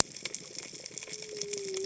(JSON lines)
{"label": "biophony, cascading saw", "recorder": "HydroMoth"}